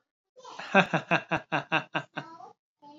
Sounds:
Laughter